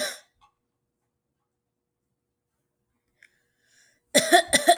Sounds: Cough